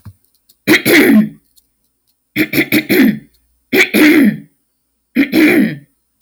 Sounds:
Throat clearing